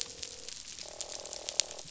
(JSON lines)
{"label": "biophony, croak", "recorder": "SoundTrap 500"}